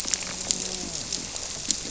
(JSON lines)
{"label": "biophony", "recorder": "SoundTrap 300"}
{"label": "biophony, grouper", "recorder": "SoundTrap 300"}